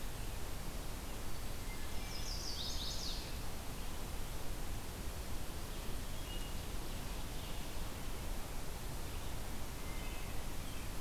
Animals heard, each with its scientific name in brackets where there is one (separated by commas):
Chestnut-sided Warbler (Setophaga pensylvanica), Wood Thrush (Hylocichla mustelina)